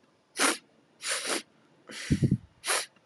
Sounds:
Sniff